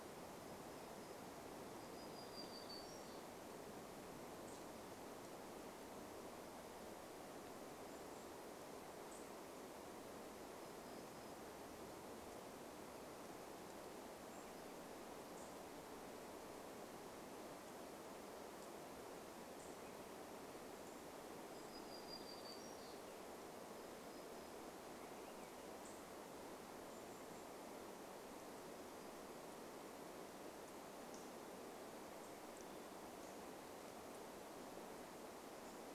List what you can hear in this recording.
warbler song, unidentified bird chip note, Swainson's Thrush song, Golden-crowned Kinglet call, Hermit Thrush song